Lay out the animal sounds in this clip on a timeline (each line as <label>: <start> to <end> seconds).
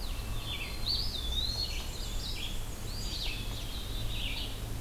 Hairy Woodpecker (Dryobates villosus): 0.0 to 0.9 seconds
Red-eyed Vireo (Vireo olivaceus): 0.0 to 4.8 seconds
Eastern Wood-Pewee (Contopus virens): 0.8 to 1.8 seconds
Black-and-white Warbler (Mniotilta varia): 1.3 to 3.2 seconds
Eastern Wood-Pewee (Contopus virens): 2.8 to 3.4 seconds
Black-capped Chickadee (Poecile atricapillus): 3.0 to 4.3 seconds